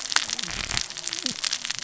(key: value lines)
label: biophony, cascading saw
recorder: SoundTrap 600 or HydroMoth